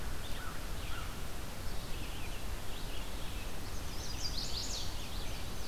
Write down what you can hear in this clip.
American Crow, Red-eyed Vireo, Chestnut-sided Warbler, Indigo Bunting